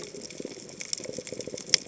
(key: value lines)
label: biophony, chatter
recorder: HydroMoth